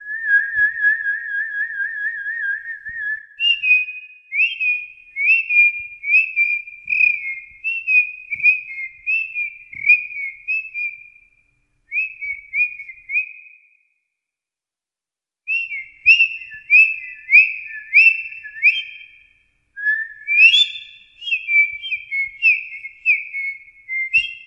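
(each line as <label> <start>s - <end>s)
A bird chirps at a moderate volume. 0.0s - 3.3s
A bird chirps rhythmically and loudly. 3.3s - 11.2s
A bird chirps shortly at moderate volume. 11.9s - 13.7s
A bird chirps loudly in a rhythmic manner. 15.4s - 24.5s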